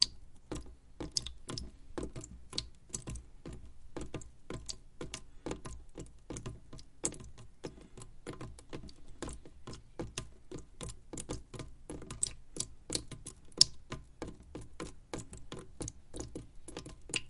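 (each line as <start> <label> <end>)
0.0 Water droplets fall continuously with a rhythmic pattern. 17.3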